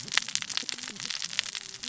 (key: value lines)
label: biophony, cascading saw
recorder: SoundTrap 600 or HydroMoth